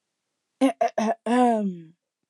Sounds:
Throat clearing